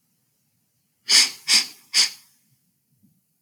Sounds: Sniff